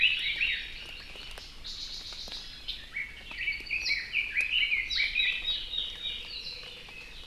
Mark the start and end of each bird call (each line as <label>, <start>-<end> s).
Red-billed Leiothrix (Leiothrix lutea), 0.0-0.8 s
Hawaii Amakihi (Chlorodrepanis virens), 0.0-1.5 s
Red-billed Leiothrix (Leiothrix lutea), 2.7-5.5 s
Warbling White-eye (Zosterops japonicus), 3.8-4.2 s